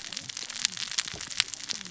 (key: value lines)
label: biophony, cascading saw
recorder: SoundTrap 600 or HydroMoth